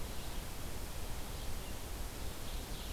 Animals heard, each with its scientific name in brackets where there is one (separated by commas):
Ovenbird (Seiurus aurocapilla), Red-eyed Vireo (Vireo olivaceus)